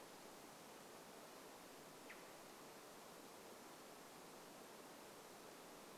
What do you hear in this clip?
Varied Thrush call